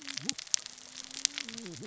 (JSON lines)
{"label": "biophony, cascading saw", "recorder": "SoundTrap 600 or HydroMoth"}